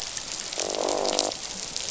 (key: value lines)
label: biophony, croak
recorder: SoundTrap 500